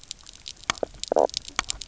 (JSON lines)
{"label": "biophony, knock croak", "recorder": "SoundTrap 300"}